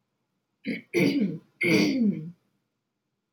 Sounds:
Throat clearing